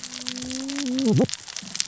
{"label": "biophony, cascading saw", "recorder": "SoundTrap 600 or HydroMoth"}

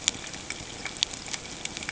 {"label": "ambient", "recorder": "HydroMoth"}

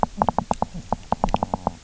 {"label": "biophony, knock", "recorder": "SoundTrap 300"}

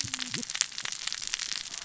{"label": "biophony, cascading saw", "recorder": "SoundTrap 600 or HydroMoth"}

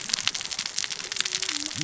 {"label": "biophony, cascading saw", "recorder": "SoundTrap 600 or HydroMoth"}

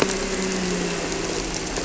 {"label": "anthrophony, boat engine", "recorder": "SoundTrap 300"}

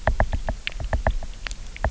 {"label": "biophony, knock", "recorder": "SoundTrap 300"}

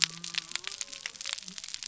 {"label": "biophony", "recorder": "SoundTrap 300"}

